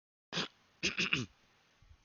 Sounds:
Throat clearing